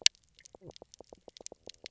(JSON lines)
{"label": "biophony, knock croak", "recorder": "SoundTrap 300"}